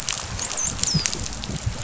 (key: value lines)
label: biophony, dolphin
recorder: SoundTrap 500